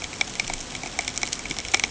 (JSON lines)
{"label": "ambient", "recorder": "HydroMoth"}